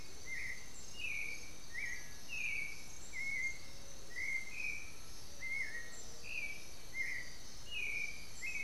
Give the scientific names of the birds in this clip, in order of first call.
Turdus ignobilis, Crypturellus undulatus